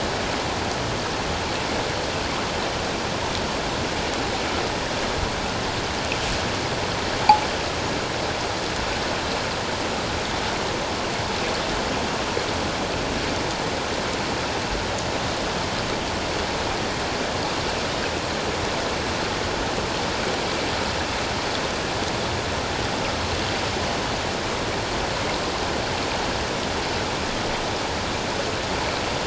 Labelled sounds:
7.2	7.5	metallic clang, 0.78 to 1.0 kHz

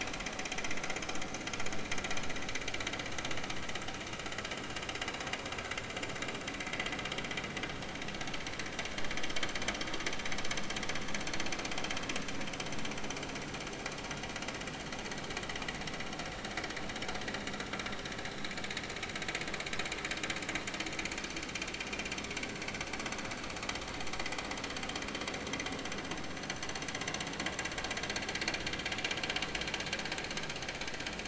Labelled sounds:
6.6	6.9	vessel noise, 2.0 to 2.2 kHz

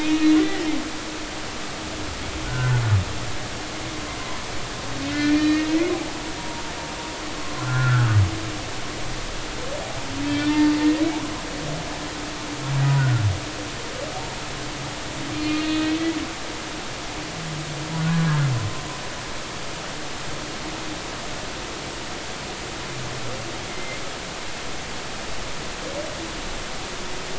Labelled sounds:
0.0	0.7	humpback whale, 1.8 to 2.6 kHz
2.5	2.8	humpback whale, 1.3 to 1.6 kHz
5.0	5.7	humpback whale, 1.4 to 2.7 kHz
6.4	6.7	humpback whale, 0.86 to 0.99 kHz
7.6	8.2	humpback whale, 1.2 to 1.8 kHz
10.2	11.7	humpback whale, 0.86 to 3.6 kHz
13.0	13.2	humpback whale, 1.3 to 1.6 kHz
15.3	16.0	humpback whale, 2.4 to 3.5 kHz
23.7	24.0	humpback whale, 2.0 to 2.2 kHz

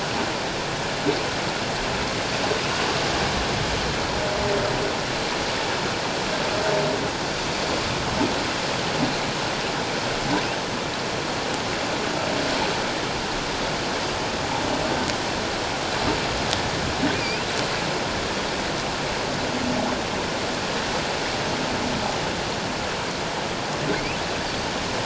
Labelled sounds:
17.1	17.5	humpback whale, 2.2 to 2.8 kHz

